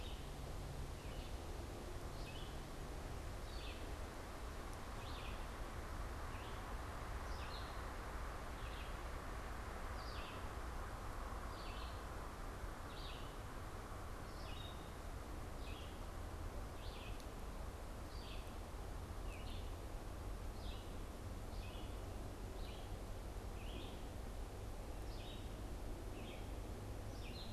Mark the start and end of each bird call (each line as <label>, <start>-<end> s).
Red-eyed Vireo (Vireo olivaceus), 0.0-15.0 s
Red-eyed Vireo (Vireo olivaceus), 15.5-27.5 s